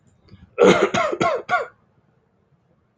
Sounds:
Cough